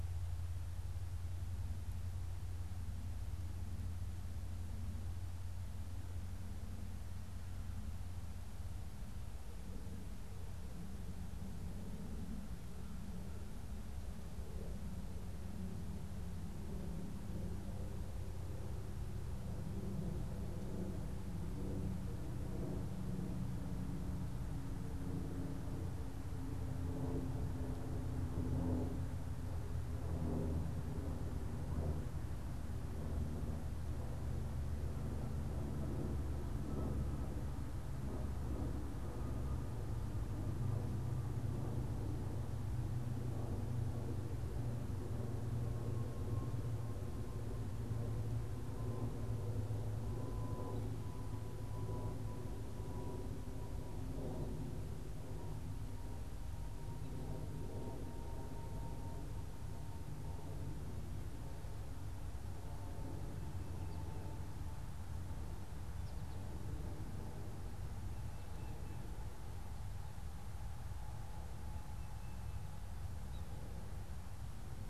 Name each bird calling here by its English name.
Yellow-bellied Sapsucker